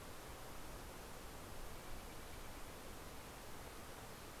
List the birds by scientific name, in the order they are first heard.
Cyanocitta stelleri